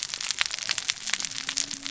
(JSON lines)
{"label": "biophony, cascading saw", "recorder": "SoundTrap 600 or HydroMoth"}